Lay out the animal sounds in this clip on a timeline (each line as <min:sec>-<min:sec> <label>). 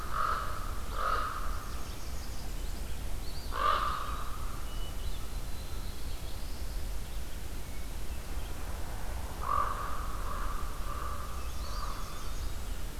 0:00.0-0:01.8 Common Raven (Corvus corax)
0:00.0-0:06.9 Red-eyed Vireo (Vireo olivaceus)
0:00.8-0:03.0 Northern Parula (Setophaga americana)
0:03.1-0:04.3 Eastern Wood-Pewee (Contopus virens)
0:03.5-0:04.5 Common Raven (Corvus corax)
0:05.2-0:06.9 Black-throated Blue Warbler (Setophaga caerulescens)
0:07.5-0:08.6 Hermit Thrush (Catharus guttatus)
0:09.3-0:12.6 Common Raven (Corvus corax)
0:11.1-0:13.0 Northern Parula (Setophaga americana)
0:11.5-0:12.7 Eastern Wood-Pewee (Contopus virens)